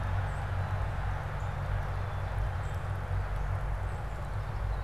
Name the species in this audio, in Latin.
Melospiza melodia, Poecile atricapillus